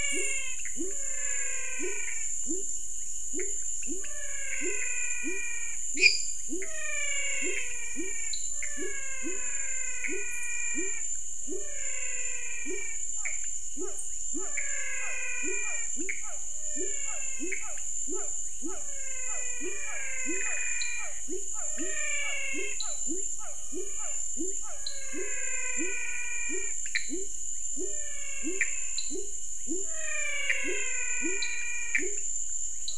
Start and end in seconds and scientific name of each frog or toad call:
0.0	32.9	Leptodactylus labyrinthicus
0.0	32.9	Physalaemus albonotatus
0.5	32.9	Pithecopus azureus
5.9	6.6	Dendropsophus minutus
8.2	8.8	Dendropsophus nanus
13.1	24.8	Physalaemus cuvieri
20.7	32.9	Dendropsophus nanus